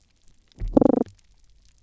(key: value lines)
label: biophony
recorder: SoundTrap 300